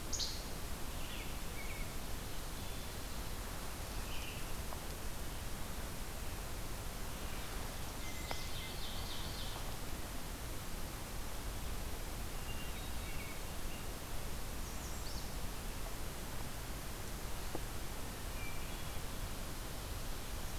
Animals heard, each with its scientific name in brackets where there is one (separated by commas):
Least Flycatcher (Empidonax minimus), American Redstart (Setophaga ruticilla), Hermit Thrush (Catharus guttatus), Ovenbird (Seiurus aurocapilla), American Robin (Turdus migratorius)